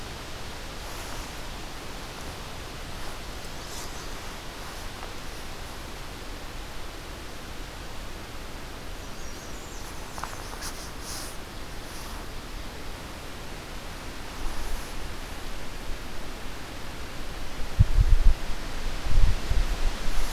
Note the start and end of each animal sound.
8.8s-10.7s: American Redstart (Setophaga ruticilla)

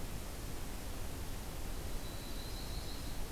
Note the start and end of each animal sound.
1.8s-3.3s: Yellow-rumped Warbler (Setophaga coronata)

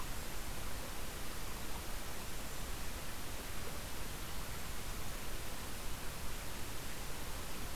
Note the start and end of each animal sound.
0.0s-0.6s: Cedar Waxwing (Bombycilla cedrorum)
2.0s-2.7s: Cedar Waxwing (Bombycilla cedrorum)

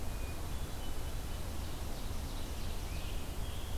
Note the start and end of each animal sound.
0.0s-1.5s: Hermit Thrush (Catharus guttatus)
1.4s-3.2s: Ovenbird (Seiurus aurocapilla)
2.7s-3.8s: Scarlet Tanager (Piranga olivacea)

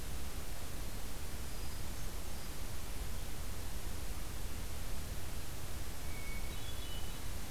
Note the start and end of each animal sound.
1.4s-3.2s: Hermit Thrush (Catharus guttatus)
6.0s-7.5s: Hermit Thrush (Catharus guttatus)

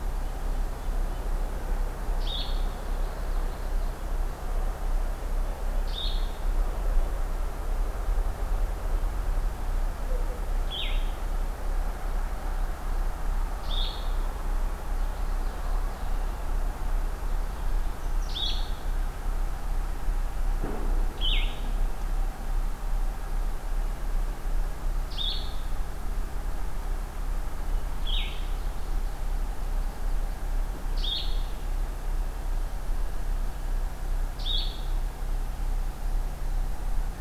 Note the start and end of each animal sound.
0.0s-2.7s: Blue-headed Vireo (Vireo solitarius)
2.6s-3.9s: Common Yellowthroat (Geothlypis trichas)
5.7s-34.8s: Blue-headed Vireo (Vireo solitarius)
14.8s-16.1s: Common Yellowthroat (Geothlypis trichas)
28.0s-29.4s: Common Yellowthroat (Geothlypis trichas)

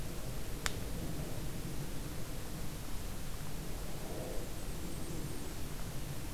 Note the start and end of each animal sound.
4.0s-5.6s: Blackburnian Warbler (Setophaga fusca)

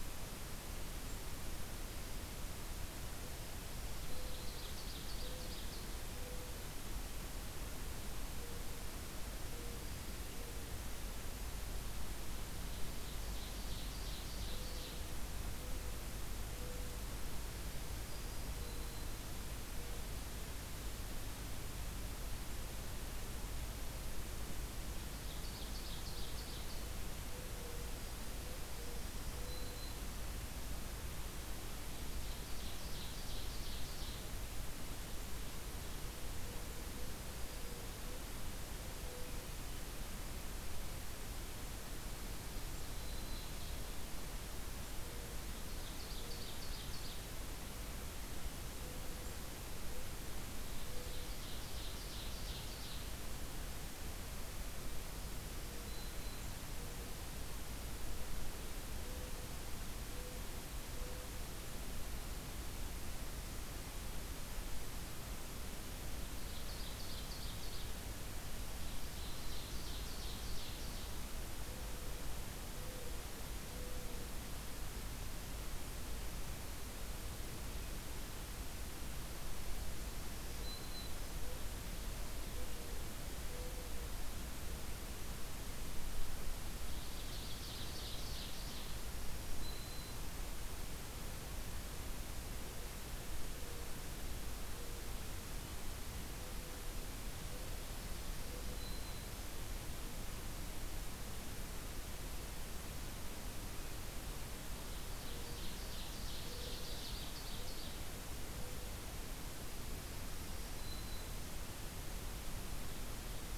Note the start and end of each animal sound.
4.1s-6.6s: Mourning Dove (Zenaida macroura)
4.1s-6.0s: Ovenbird (Seiurus aurocapilla)
8.3s-10.8s: Mourning Dove (Zenaida macroura)
12.9s-15.0s: Ovenbird (Seiurus aurocapilla)
14.4s-17.0s: Mourning Dove (Zenaida macroura)
17.9s-19.1s: Black-throated Green Warbler (Setophaga virens)
18.5s-20.3s: Mourning Dove (Zenaida macroura)
25.2s-26.8s: Ovenbird (Seiurus aurocapilla)
27.2s-29.9s: Mourning Dove (Zenaida macroura)
28.1s-30.1s: Black-throated Green Warbler (Setophaga virens)
32.0s-34.2s: Ovenbird (Seiurus aurocapilla)
36.7s-39.6s: Mourning Dove (Zenaida macroura)
37.0s-37.9s: Black-throated Green Warbler (Setophaga virens)
42.4s-43.9s: Ovenbird (Seiurus aurocapilla)
42.8s-43.5s: Black-throated Green Warbler (Setophaga virens)
45.4s-47.2s: Ovenbird (Seiurus aurocapilla)
48.5s-51.4s: Mourning Dove (Zenaida macroura)
50.7s-53.1s: Ovenbird (Seiurus aurocapilla)
55.6s-56.5s: Black-throated Green Warbler (Setophaga virens)
59.0s-61.4s: Mourning Dove (Zenaida macroura)
66.3s-67.9s: Ovenbird (Seiurus aurocapilla)
68.8s-71.1s: Ovenbird (Seiurus aurocapilla)
71.8s-74.2s: Mourning Dove (Zenaida macroura)
79.9s-81.5s: Black-throated Green Warbler (Setophaga virens)
81.3s-84.0s: Mourning Dove (Zenaida macroura)
86.8s-88.9s: Ovenbird (Seiurus aurocapilla)
89.1s-90.2s: Black-throated Green Warbler (Setophaga virens)
96.3s-98.9s: Mourning Dove (Zenaida macroura)
97.9s-99.6s: Black-throated Green Warbler (Setophaga virens)
104.9s-108.0s: Ovenbird (Seiurus aurocapilla)
105.3s-108.9s: Mourning Dove (Zenaida macroura)
110.0s-111.5s: Black-throated Green Warbler (Setophaga virens)

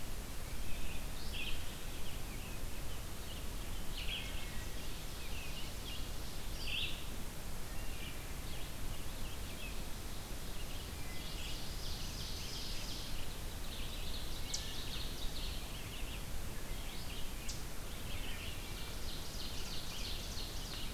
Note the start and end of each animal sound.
0.0s-20.3s: Red-eyed Vireo (Vireo olivaceus)
4.4s-6.7s: Ovenbird (Seiurus aurocapilla)
11.1s-15.8s: Ovenbird (Seiurus aurocapilla)
14.5s-17.6s: Eastern Chipmunk (Tamias striatus)
18.5s-20.9s: Ovenbird (Seiurus aurocapilla)

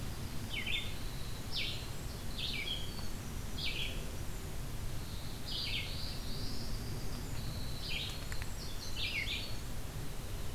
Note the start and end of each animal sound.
0.0s-4.6s: Winter Wren (Troglodytes hiemalis)
0.0s-10.5s: Red-eyed Vireo (Vireo olivaceus)
5.0s-6.7s: Black-throated Blue Warbler (Setophaga caerulescens)
5.9s-9.9s: Winter Wren (Troglodytes hiemalis)
9.8s-10.5s: Yellow-rumped Warbler (Setophaga coronata)

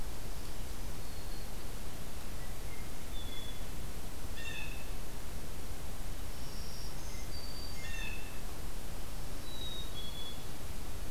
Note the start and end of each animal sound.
0.2s-1.6s: Black-throated Green Warbler (Setophaga virens)
4.4s-4.9s: Blue Jay (Cyanocitta cristata)
5.9s-8.3s: Black-throated Green Warbler (Setophaga virens)
7.6s-8.6s: Blue Jay (Cyanocitta cristata)
9.3s-10.4s: Black-capped Chickadee (Poecile atricapillus)

